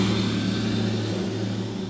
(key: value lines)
label: anthrophony, boat engine
recorder: SoundTrap 500